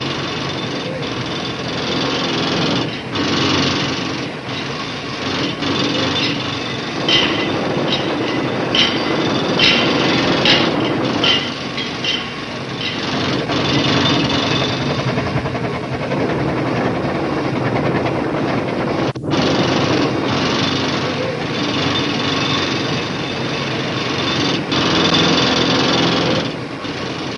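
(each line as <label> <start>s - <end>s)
A loud drilling sound produces a harsh, repetitive buzz as machinery cuts into hard surfaces. 0.0s - 27.4s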